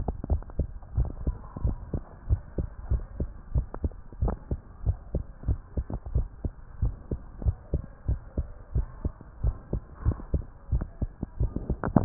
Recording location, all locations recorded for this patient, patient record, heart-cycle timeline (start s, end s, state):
tricuspid valve (TV)
aortic valve (AV)+pulmonary valve (PV)+tricuspid valve (TV)+mitral valve (MV)
#Age: Child
#Sex: Male
#Height: 131.0 cm
#Weight: 23.7 kg
#Pregnancy status: False
#Murmur: Absent
#Murmur locations: nan
#Most audible location: nan
#Systolic murmur timing: nan
#Systolic murmur shape: nan
#Systolic murmur grading: nan
#Systolic murmur pitch: nan
#Systolic murmur quality: nan
#Diastolic murmur timing: nan
#Diastolic murmur shape: nan
#Diastolic murmur grading: nan
#Diastolic murmur pitch: nan
#Diastolic murmur quality: nan
#Outcome: Abnormal
#Campaign: 2015 screening campaign
0.00	0.71	unannotated
0.71	0.94	diastole
0.94	1.10	S1
1.10	1.24	systole
1.24	1.36	S2
1.36	1.62	diastole
1.62	1.76	S1
1.76	1.92	systole
1.92	2.02	S2
2.02	2.28	diastole
2.28	2.42	S1
2.42	2.56	systole
2.56	2.66	S2
2.66	2.88	diastole
2.88	3.04	S1
3.04	3.18	systole
3.18	3.28	S2
3.28	3.54	diastole
3.54	3.66	S1
3.66	3.82	systole
3.82	3.92	S2
3.92	4.20	diastole
4.20	4.36	S1
4.36	4.50	systole
4.50	4.60	S2
4.60	4.86	diastole
4.86	4.98	S1
4.98	5.12	systole
5.12	5.22	S2
5.22	5.48	diastole
5.48	5.62	S1
5.62	5.76	systole
5.76	5.86	S2
5.86	6.14	diastole
6.14	6.28	S1
6.28	6.42	systole
6.42	6.54	S2
6.54	6.80	diastole
6.80	6.94	S1
6.94	7.10	systole
7.10	7.20	S2
7.20	7.42	diastole
7.42	7.56	S1
7.56	7.72	systole
7.72	7.82	S2
7.82	8.07	diastole
8.07	8.20	S1
8.20	8.35	systole
8.35	8.48	S2
8.48	8.72	diastole
8.72	8.86	S1
8.86	9.00	systole
9.00	9.14	S2
9.14	9.40	diastole
9.40	9.55	S1
9.55	9.72	systole
9.72	9.84	S2
9.84	10.02	diastole
10.02	10.18	S1
10.18	10.31	systole
10.31	10.44	S2
10.44	10.58	diastole
10.58	12.05	unannotated